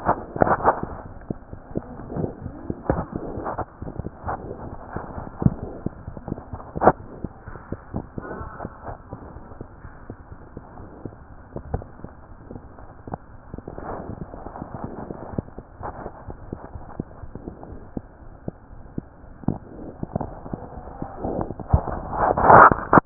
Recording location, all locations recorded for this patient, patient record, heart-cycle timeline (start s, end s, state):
mitral valve (MV)
aortic valve (AV)+mitral valve (MV)
#Age: Infant
#Sex: Male
#Height: 66.0 cm
#Weight: 11.0 kg
#Pregnancy status: False
#Murmur: Unknown
#Murmur locations: nan
#Most audible location: nan
#Systolic murmur timing: nan
#Systolic murmur shape: nan
#Systolic murmur grading: nan
#Systolic murmur pitch: nan
#Systolic murmur quality: nan
#Diastolic murmur timing: nan
#Diastolic murmur shape: nan
#Diastolic murmur grading: nan
#Diastolic murmur pitch: nan
#Diastolic murmur quality: nan
#Outcome: Normal
#Campaign: 2015 screening campaign
0.00	15.31	unannotated
15.31	15.37	S1
15.37	15.55	systole
15.55	15.62	S2
15.62	15.78	diastole
15.78	15.90	S1
15.90	16.02	systole
16.02	16.12	S2
16.12	16.24	diastole
16.24	16.35	S1
16.35	16.48	systole
16.48	16.58	S2
16.58	16.71	diastole
16.71	16.82	S1
16.82	16.95	systole
16.95	17.04	S2
17.04	17.19	diastole
17.19	17.31	S1
17.31	17.44	systole
17.44	17.54	S2
17.54	17.69	diastole
17.69	17.82	S1
17.82	17.94	systole
17.94	18.04	S2
18.04	18.22	diastole
18.22	18.34	S1
18.34	18.44	systole
18.44	18.56	S2
18.56	18.70	diastole
18.70	18.84	S1
18.84	18.94	systole
18.94	19.06	S2
19.06	19.22	diastole
19.22	19.36	S1
19.36	23.06	unannotated